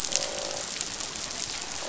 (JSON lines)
{"label": "biophony, croak", "recorder": "SoundTrap 500"}